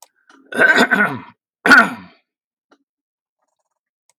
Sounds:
Throat clearing